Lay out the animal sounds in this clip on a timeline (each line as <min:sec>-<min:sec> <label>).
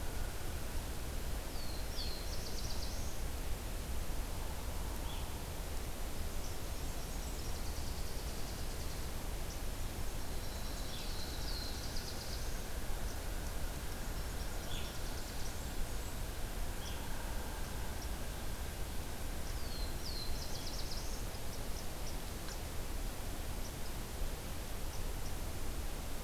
0:01.4-0:03.2 Black-throated Blue Warbler (Setophaga caerulescens)
0:06.1-0:09.1 Nashville Warbler (Leiothlypis ruficapilla)
0:09.5-0:12.1 Nashville Warbler (Leiothlypis ruficapilla)
0:10.9-0:12.5 Black-throated Blue Warbler (Setophaga caerulescens)
0:13.8-0:15.8 Nashville Warbler (Leiothlypis ruficapilla)
0:14.8-0:16.2 Blackburnian Warbler (Setophaga fusca)
0:19.5-0:21.3 Black-throated Blue Warbler (Setophaga caerulescens)